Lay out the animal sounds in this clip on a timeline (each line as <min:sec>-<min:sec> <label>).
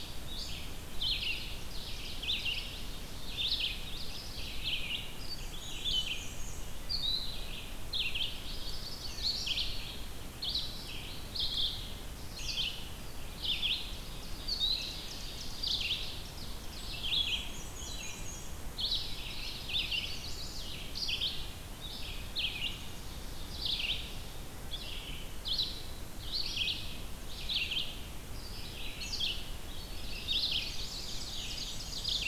0:00.0-0:32.3 Red-eyed Vireo (Vireo olivaceus)
0:01.1-0:03.0 Ovenbird (Seiurus aurocapilla)
0:03.6-0:04.7 Chestnut-sided Warbler (Setophaga pensylvanica)
0:05.0-0:07.0 Black-and-white Warbler (Mniotilta varia)
0:08.1-0:09.7 Chestnut-sided Warbler (Setophaga pensylvanica)
0:13.5-0:16.9 Ovenbird (Seiurus aurocapilla)
0:16.8-0:18.8 Black-and-white Warbler (Mniotilta varia)
0:19.2-0:20.8 Chestnut-sided Warbler (Setophaga pensylvanica)
0:22.9-0:24.4 Ovenbird (Seiurus aurocapilla)
0:29.4-0:31.3 Chestnut-sided Warbler (Setophaga pensylvanica)
0:30.1-0:32.3 Ovenbird (Seiurus aurocapilla)
0:30.5-0:32.3 Black-and-white Warbler (Mniotilta varia)